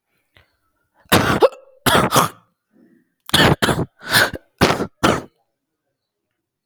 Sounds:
Laughter